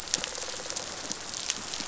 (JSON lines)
{"label": "biophony", "recorder": "SoundTrap 500"}